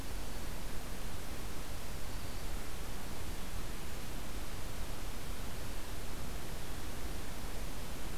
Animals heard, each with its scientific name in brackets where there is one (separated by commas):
Black-throated Green Warbler (Setophaga virens)